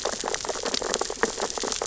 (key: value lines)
label: biophony, sea urchins (Echinidae)
recorder: SoundTrap 600 or HydroMoth